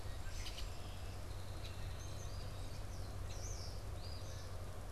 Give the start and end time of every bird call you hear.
0.0s-4.9s: Red-winged Blackbird (Agelaius phoeniceus)
1.7s-3.8s: unidentified bird
3.9s-4.9s: Eastern Phoebe (Sayornis phoebe)

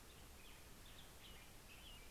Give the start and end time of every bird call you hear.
0.0s-1.7s: Black-headed Grosbeak (Pheucticus melanocephalus)
1.5s-2.1s: American Robin (Turdus migratorius)

